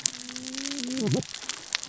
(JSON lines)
{"label": "biophony, cascading saw", "recorder": "SoundTrap 600 or HydroMoth"}